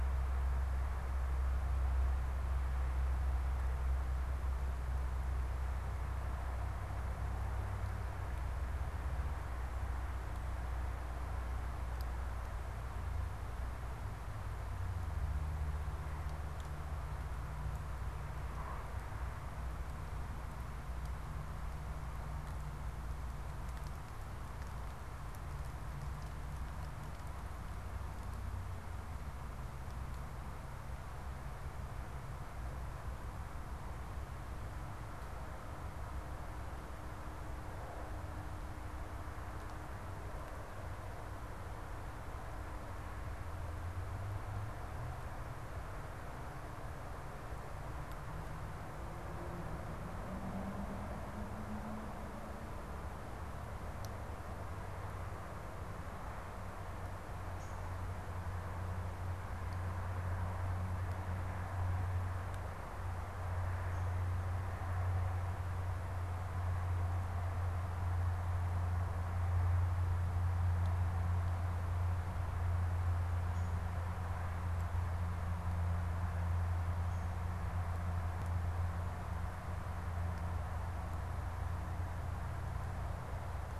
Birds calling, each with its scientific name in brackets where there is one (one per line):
Downy Woodpecker (Dryobates pubescens)